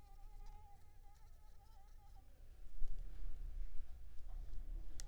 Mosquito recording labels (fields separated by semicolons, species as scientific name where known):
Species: Culex pipiens complex; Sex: female; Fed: unfed; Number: one; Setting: cup